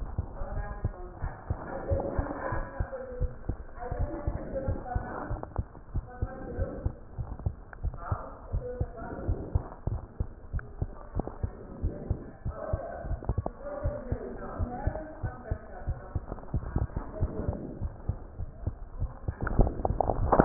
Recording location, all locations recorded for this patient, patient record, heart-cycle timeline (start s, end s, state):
aortic valve (AV)
aortic valve (AV)+pulmonary valve (PV)+tricuspid valve (TV)+mitral valve (MV)
#Age: Child
#Sex: Female
#Height: 102.0 cm
#Weight: 15.7 kg
#Pregnancy status: False
#Murmur: Present
#Murmur locations: aortic valve (AV)+mitral valve (MV)
#Most audible location: mitral valve (MV)
#Systolic murmur timing: Early-systolic
#Systolic murmur shape: Plateau
#Systolic murmur grading: I/VI
#Systolic murmur pitch: Low
#Systolic murmur quality: Blowing
#Diastolic murmur timing: nan
#Diastolic murmur shape: nan
#Diastolic murmur grading: nan
#Diastolic murmur pitch: nan
#Diastolic murmur quality: nan
#Outcome: Normal
#Campaign: 2015 screening campaign
0.00	5.57	unannotated
5.57	5.66	S2
5.66	5.94	diastole
5.94	6.04	S1
6.04	6.18	systole
6.18	6.30	S2
6.30	6.56	diastole
6.56	6.70	S1
6.70	6.84	systole
6.84	6.94	S2
6.94	7.18	diastole
7.18	7.30	S1
7.30	7.42	systole
7.42	7.56	S2
7.56	7.82	diastole
7.82	7.94	S1
7.94	8.08	systole
8.08	8.20	S2
8.20	8.52	diastole
8.52	8.64	S1
8.64	8.76	systole
8.76	8.90	S2
8.90	9.24	diastole
9.24	9.38	S1
9.38	9.50	systole
9.50	9.62	S2
9.62	9.88	diastole
9.88	10.02	S1
10.02	10.16	systole
10.16	10.28	S2
10.28	10.54	diastole
10.54	10.64	S1
10.64	10.80	systole
10.80	10.92	S2
10.92	11.16	diastole
11.16	11.26	S1
11.26	11.42	systole
11.42	11.54	S2
11.54	11.82	diastole
11.82	11.96	S1
11.96	12.08	systole
12.08	12.18	S2
12.18	12.46	diastole
12.46	12.56	S1
12.56	12.68	systole
12.68	12.82	S2
12.82	13.06	diastole
13.06	13.22	S1
13.22	13.36	systole
13.36	13.52	S2
13.52	13.82	diastole
13.82	13.96	S1
13.96	14.06	systole
14.06	14.20	S2
14.20	14.54	diastole
14.54	14.70	S1
14.70	14.82	systole
14.82	14.94	S2
14.94	15.22	diastole
15.22	15.34	S1
15.34	15.50	systole
15.50	15.62	S2
15.62	15.88	diastole
15.88	16.00	S1
16.00	16.14	systole
16.14	16.24	S2
16.24	16.52	diastole
16.52	16.66	S1
16.66	16.74	systole
16.74	16.90	S2
16.90	17.20	diastole
17.20	17.34	S1
17.34	17.46	systole
17.46	17.60	S2
17.60	17.78	diastole
17.78	17.94	S1
17.94	18.08	systole
18.08	18.18	S2
18.18	18.38	diastole
18.38	18.52	S1
18.52	18.66	systole
18.66	18.78	S2
18.78	19.00	diastole
19.00	19.14	S1
19.14	19.24	systole
19.24	20.45	unannotated